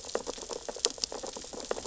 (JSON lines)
{"label": "biophony, sea urchins (Echinidae)", "recorder": "SoundTrap 600 or HydroMoth"}